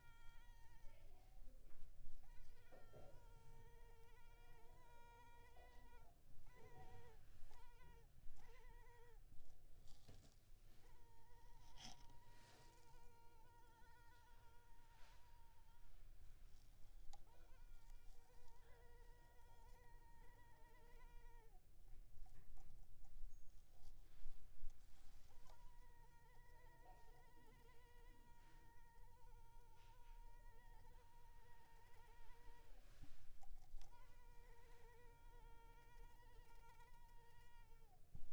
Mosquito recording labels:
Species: Culex pipiens complex; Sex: female; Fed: unfed; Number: one; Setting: cup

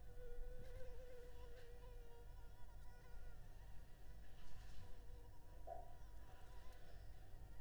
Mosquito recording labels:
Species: Anopheles arabiensis; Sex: female; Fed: unfed; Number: one; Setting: cup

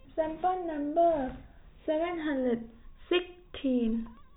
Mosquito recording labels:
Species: no mosquito; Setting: cup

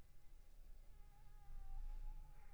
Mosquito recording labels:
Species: Anopheles funestus s.s.; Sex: female; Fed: unfed; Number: one; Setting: cup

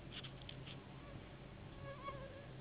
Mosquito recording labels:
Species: Anopheles gambiae s.s.; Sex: female; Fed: unfed; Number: one; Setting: insect culture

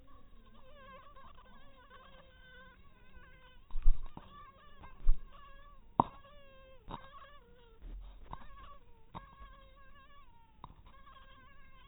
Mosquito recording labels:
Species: mosquito; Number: one; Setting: cup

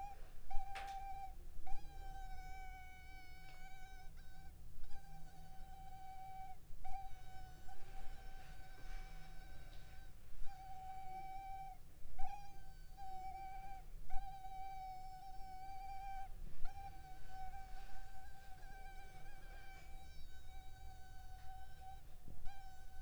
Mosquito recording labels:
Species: Culex pipiens complex; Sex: female; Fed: unfed; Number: one; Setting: cup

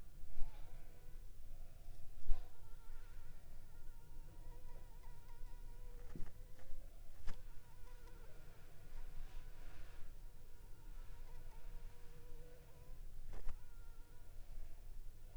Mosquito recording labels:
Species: Anopheles funestus s.l.; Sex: female; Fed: unfed; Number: one; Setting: cup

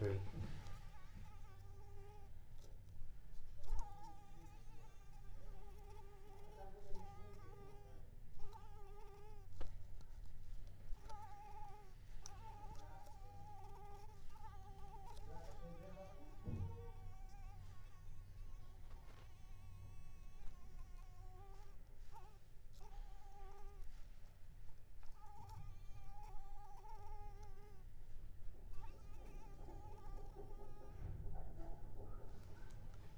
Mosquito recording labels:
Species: Mansonia uniformis; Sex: female; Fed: unfed; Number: one; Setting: cup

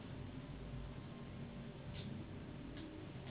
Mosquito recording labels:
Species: Anopheles gambiae s.s.; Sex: female; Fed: unfed; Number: one; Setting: insect culture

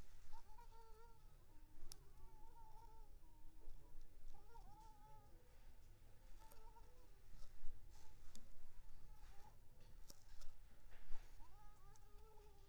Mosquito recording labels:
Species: Anopheles arabiensis; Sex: female; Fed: unfed; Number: one; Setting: cup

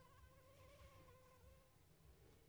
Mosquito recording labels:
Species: Anopheles arabiensis; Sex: female; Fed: unfed; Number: one; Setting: cup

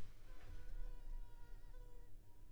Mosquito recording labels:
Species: Culex pipiens complex; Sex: female; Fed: unfed; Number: one; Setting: cup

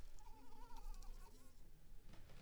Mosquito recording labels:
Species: Anopheles arabiensis; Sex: female; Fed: unfed; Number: one; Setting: cup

